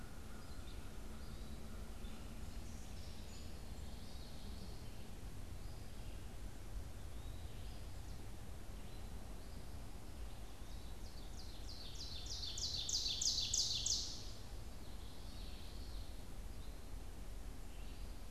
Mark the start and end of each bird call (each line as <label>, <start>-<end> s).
Red-eyed Vireo (Vireo olivaceus), 0.0-18.3 s
Eastern Wood-Pewee (Contopus virens), 6.9-7.8 s
Ovenbird (Seiurus aurocapilla), 10.4-14.5 s
Common Yellowthroat (Geothlypis trichas), 14.5-16.2 s